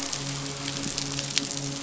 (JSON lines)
{"label": "biophony, midshipman", "recorder": "SoundTrap 500"}